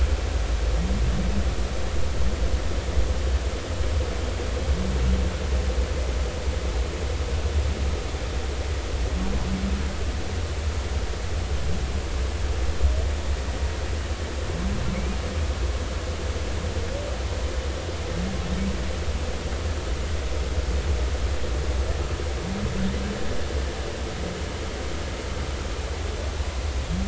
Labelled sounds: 14.9	15.2	humpback whale, 2.1 to 2.6 kHz

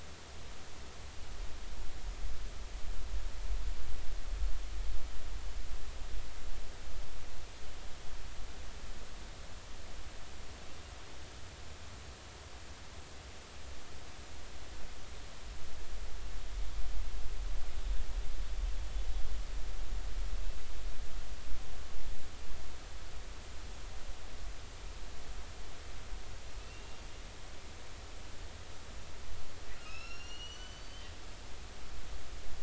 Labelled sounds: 26.6	27.0	killer whale, northern resident, 2.6 to 2.8 kHz
29.8	31.1	killer whale, northern resident, A clan, AA subclan, A01 pod, 1.2 to 6.1 kHz

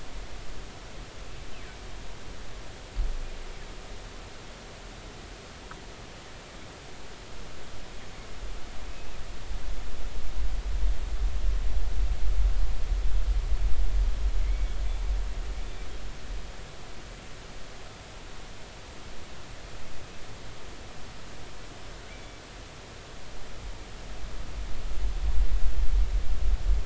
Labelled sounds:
8.8	9.2	killer whale, northern resident, G clan, 2.5 to 2.7 kHz
14.4	14.8	killer whale, northern resident, G clan, GI subclan, call N23i, 2.0 to 2.3 kHz
22.1	22.4	killer whale, northern resident, G clan, GI subclan, call N23i, 2.0 to 2.4 kHz

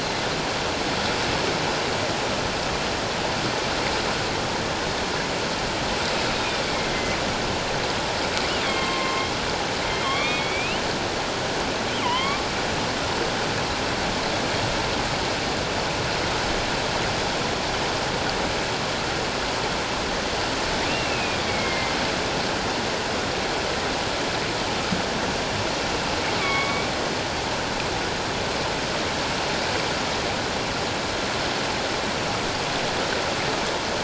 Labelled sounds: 6.3	7.2	killer whale, northern resident, A clan, AA subclan, A04 pod, 1.9 to 3.8 kHz
8.6	9.3	killer whale, northern resident, A clan, AA subclan, A04 pod, 1.0 to 3.7 kHz
10.0	10.8	killer whale, northern resident, A clan, AA subclan, A04 pod, 1.0 to 3.8 kHz
12.0	12.4	killer whale, northern resident, A clan, AA subclan, A04 pod, 0.91 to 3.4 kHz
20.9	21.9	killer whale, northern resident, A clan, AA subclan, A04 pod, 2.0 to 2.8 kHz
26.4	26.9	killer whale, northern resident, A clan, AA subclan, A04 pod, 1.0 to 3.5 kHz

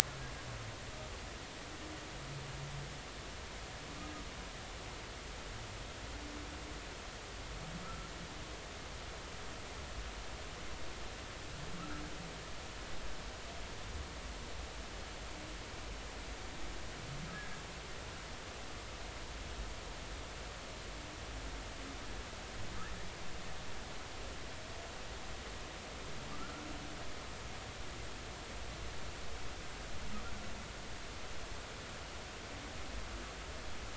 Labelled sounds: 26.3	26.7	humpback whale, 1.1 to 1.5 kHz

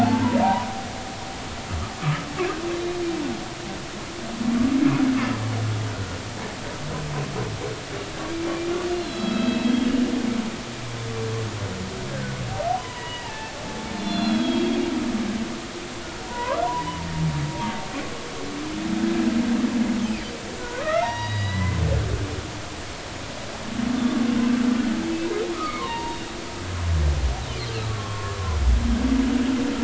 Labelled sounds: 0.0	0.7	humpback whale, 0.80 to 1.1 kHz
2.0	2.2	humpback whale, 1.1 to 1.3 kHz
9.0	9.7	humpback whale, 1.2 to 4.2 kHz
12.1	14.8	humpback whale, 0.83 to 4.3 kHz
16.3	16.7	humpback whale, 0.90 to 1.7 kHz
20.6	21.8	humpback whale, 0.86 to 5.8 kHz
25.5	26.2	humpback whale, 0.86 to 1.3 kHz
27.9	28.4	humpback whale, 1.0 to 1.2 kHz

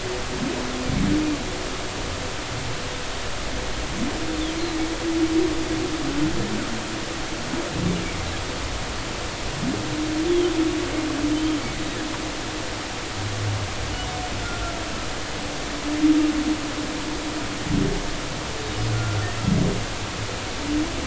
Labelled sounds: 11.3	11.6	humpback whale, 3.0 to 3.5 kHz
14.4	14.7	humpback whale, 1.3 to 1.5 kHz
18.9	19.2	humpback whale, 1.3 to 1.5 kHz

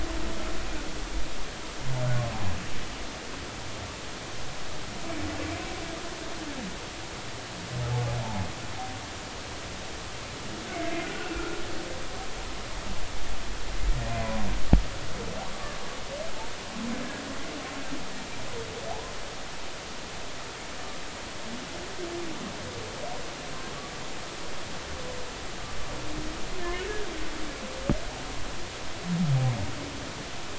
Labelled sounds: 10.8	11.6	humpback whale, 1.3 to 2.2 kHz

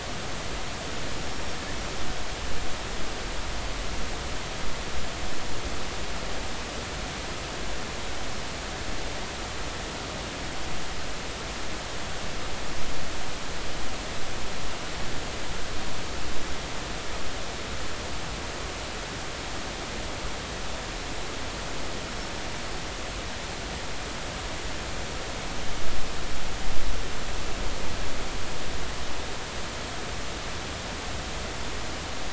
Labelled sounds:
1.2	1.6	killer whale, northern resident, 5.4 to 5.6 kHz

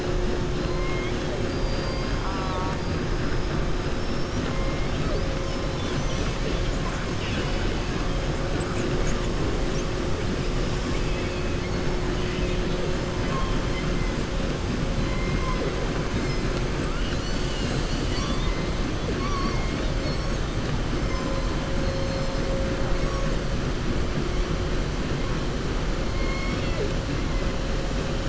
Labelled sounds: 0.6	2.6	killer whale, southern resident, 1.1 to 5.1 kHz
4.0	4.5	killer whale, southern resident, 5.3 to 6.4 kHz
11.0	11.5	killer whale, southern resident, 2.0 to 3.4 kHz

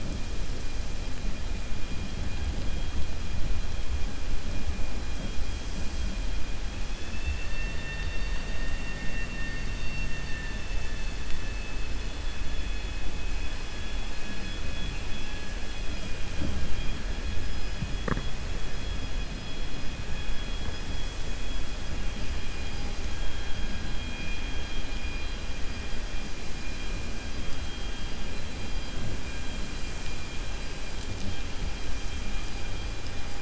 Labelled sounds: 14.7	15.1	vessel noise, 2.3 to 4.2 kHz
15.8	17.0	vessel noise, 2.4 to 5.8 kHz

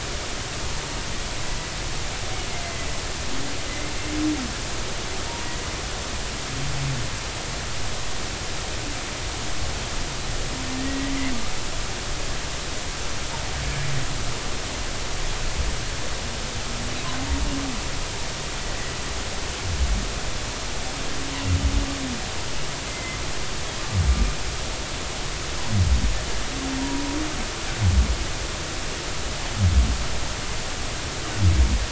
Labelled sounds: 10.8	11.1	humpback whale, 1.9 to 2.1 kHz
22.9	23.2	humpback whale, 2.0 to 2.1 kHz
26.8	27.0	humpback whale, 0.90 to 0.99 kHz

